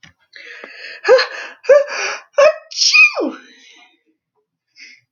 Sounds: Sneeze